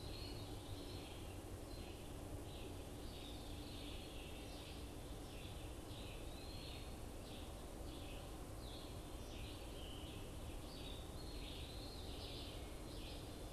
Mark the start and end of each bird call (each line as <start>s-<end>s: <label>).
0.0s-0.7s: Eastern Wood-Pewee (Contopus virens)
0.0s-13.5s: Red-eyed Vireo (Vireo olivaceus)
3.0s-5.0s: Veery (Catharus fuscescens)
5.7s-7.1s: Eastern Wood-Pewee (Contopus virens)
11.0s-12.3s: Eastern Wood-Pewee (Contopus virens)